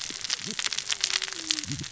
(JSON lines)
{"label": "biophony, cascading saw", "recorder": "SoundTrap 600 or HydroMoth"}